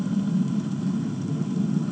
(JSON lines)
{"label": "anthrophony, boat engine", "recorder": "HydroMoth"}